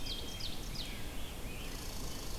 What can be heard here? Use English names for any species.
Black-capped Chickadee, Ovenbird, Rose-breasted Grosbeak, Red Squirrel